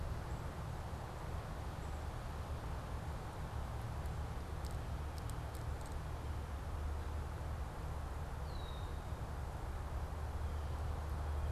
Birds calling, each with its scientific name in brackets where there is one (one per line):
Red-winged Blackbird (Agelaius phoeniceus)